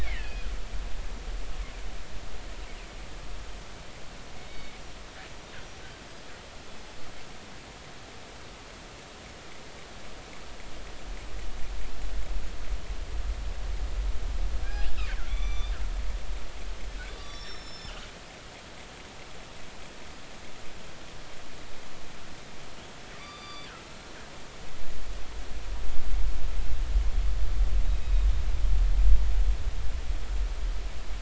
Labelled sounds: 0.0	0.5	killer whale, northern resident, G clan, 1.6 to 2.8 kHz
4.4	4.7	killer whale, northern resident, G clan, GI subclan, call N24i, 2.1 to 4.5 kHz
14.6	15.0	killer whale, northern resident, G clan, 2.3 to 2.9 kHz
15.3	15.8	killer whale, northern resident, G clan, 1.1 to 6.0 kHz
17.2	17.9	killer whale, northern resident, G clan, 3.4 to 7.3 kHz
23.1	23.7	killer whale, northern resident, G clan, GI subclan, call N23i, 1.1 to 4.8 kHz
28.0	28.4	killer whale, northern resident, G clan, 3.6 to 3.9 kHz

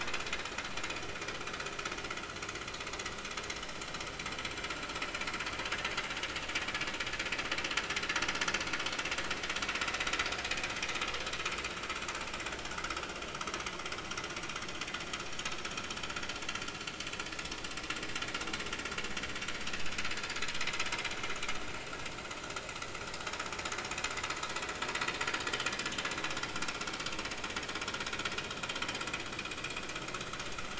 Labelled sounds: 12.7	13.0	vessel noise, 1.2 to 1.6 kHz
19.7	19.9	vessel noise, 2.6 to 2.7 kHz

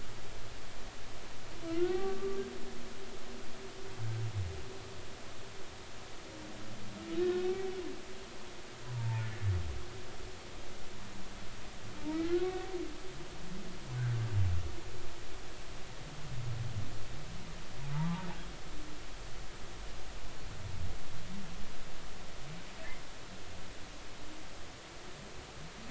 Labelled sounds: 1.7	2.4	humpback whale, 1.1 to 1.6 kHz
8.9	9.2	humpback whale, 0.83 to 0.99 kHz
12.1	12.4	humpback whale, 1.2 to 1.5 kHz
13.9	14.2	humpback whale, 1.4 to 1.6 kHz
17.9	18.3	humpback whale, 0.80 to 1.1 kHz

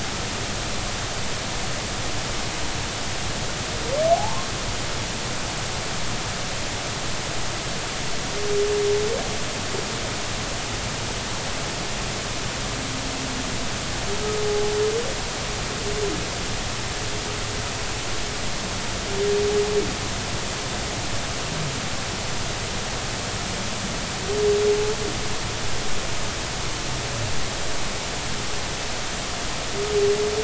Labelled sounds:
4.1	4.5	humpback whale, 0.80 to 1.1 kHz

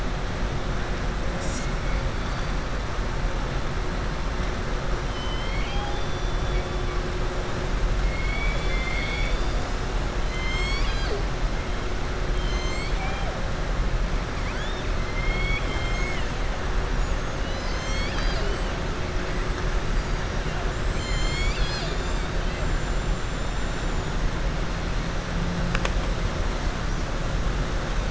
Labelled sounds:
5.0	6.2	killer whale, southern resident, 0.79 to 4.9 kHz
8.0	9.8	killer whale, southern resident, 1.7 to 5.6 kHz
12.3	13.3	killer whale, southern resident, 0.78 to 7.8 kHz
15.0	16.3	killer whale, southern resident, 1.5 to 5.3 kHz

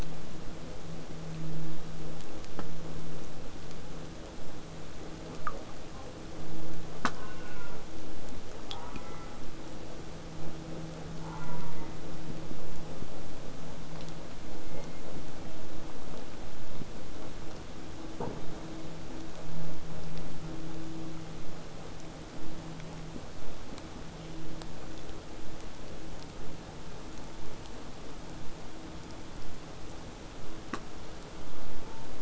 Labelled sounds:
5.9	6.1	killer whale, 0.30 to 1.5 kHz
7.1	7.9	killer whale, southern resident, J pod, call S04, 0.30 to 2.9 kHz
8.7	9.4	killer whale, southern resident, J pod, call S04, 0.59 to 2.3 kHz
11.2	12.0	killer whale, southern resident, J pod, call S04, 0.72 to 2.5 kHz
14.4	15.7	killer whale, southern resident, J pod, call S03, 1.9 to 4.5 kHz

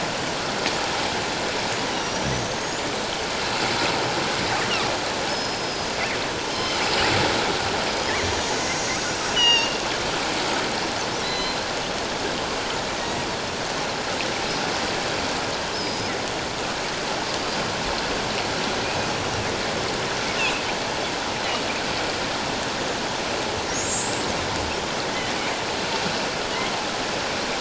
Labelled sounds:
1.9	2.9	killer whale, northern resident, 5.6 to 7.2 kHz
5.3	6.8	killer whale, northern resident, 2.9 to 5.3 kHz
8.6	8.9	killer whale, northern resident, 5.5 to 6.9 kHz
9.3	9.8	killer whale, northern resident, 0.84 to 6.9 kHz
11.2	11.6	killer whale, northern resident, 1.9 to 4.2 kHz
15.7	16.1	killer whale, northern resident, 4.9 to 5.3 kHz
20.4	20.6	killer whale, northern resident, 2.4 to 2.9 kHz
24.0	24.3	killer whale, northern resident, 7.7 to 7.9 kHz

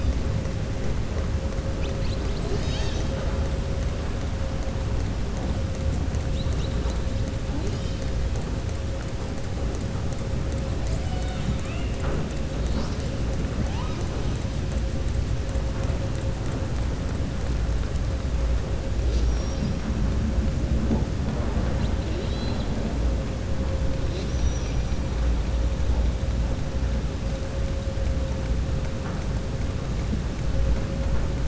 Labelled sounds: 22.0	22.7	killer whale, southern resident, 2.1 to 5.4 kHz

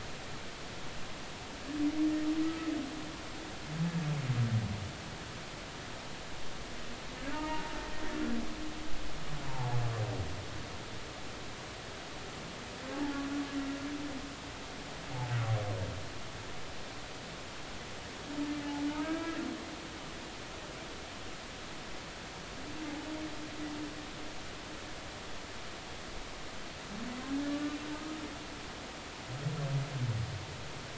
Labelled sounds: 2.4	2.7	humpback whale, 1.2 to 1.3 kHz
7.3	7.6	humpback whale, 0.86 to 1.9 kHz
9.4	9.7	humpback whale, 0.80 to 1.1 kHz
18.9	19.4	humpback whale, 1.2 to 2.3 kHz
27.3	27.6	humpback whale, 1.6 to 1.9 kHz
27.9	28.2	humpback whale, 1.2 to 1.3 kHz

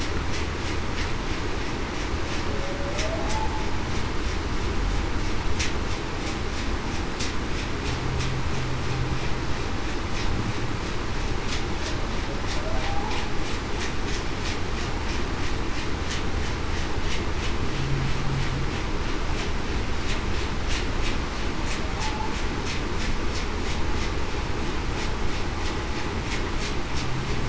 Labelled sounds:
2.5	3.3	humpback whale, 0.54 to 0.68 kHz

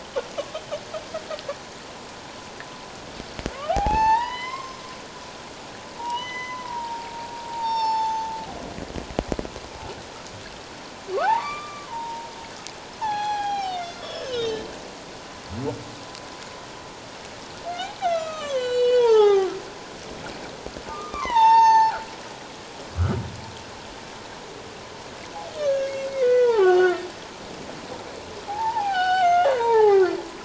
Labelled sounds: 3.5	4.8	humpback whale, 0.78 to 5.4 kHz
6.0	7.1	humpback whale, 0.81 to 6.2 kHz
7.5	8.3	humpback whale, 0.78 to 6.3 kHz
11.1	12.3	humpback whale, 0.78 to 2.4 kHz
13.0	14.6	humpback whale, 0.78 to 6.3 kHz
18.0	19.5	humpback whale, 0.78 to 7.6 kHz
20.9	22.0	humpback whale, 0.78 to 6.4 kHz
25.6	27.1	humpback whale, 0.78 to 6.7 kHz
28.5	30.2	humpback whale, 0.78 to 5.3 kHz

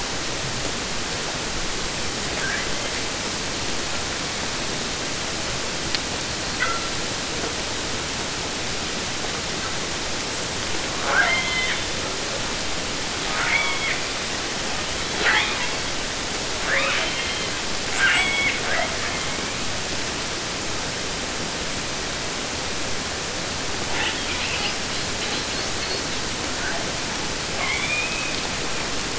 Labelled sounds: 2.3	3.1	killer whale, southern resident, 1.0 to 3.9 kHz
6.2	7.1	killer whale, southern resident, J pod, call S42, 0.81 to 4.7 kHz
11.0	12.2	killer whale, southern resident, J pod, call S44, 0.50 to 5.8 kHz
13.2	14.1	killer whale, southern resident, J pod, call S44, 0.50 to 4.6 kHz
14.8	15.9	killer whale, 0.04 to 5.1 kHz
16.5	17.6	killer whale, southern resident, 0.26 to 5.0 kHz
17.7	19.7	killer whale, southern resident, J pod, call S44, 0.50 to 8.0 kHz
23.8	26.1	killer whale, 0.50 to 6.3 kHz
26.6	26.9	killer whale, 0.35 to 2.0 kHz
27.5	28.5	killer whale, southern resident, 0.50 to 8.0 kHz

